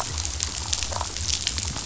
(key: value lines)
label: biophony
recorder: SoundTrap 500